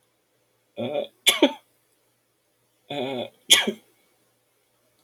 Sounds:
Sneeze